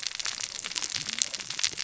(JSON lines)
{"label": "biophony, cascading saw", "recorder": "SoundTrap 600 or HydroMoth"}